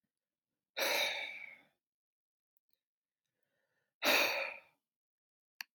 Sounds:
Sigh